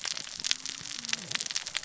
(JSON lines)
{"label": "biophony, cascading saw", "recorder": "SoundTrap 600 or HydroMoth"}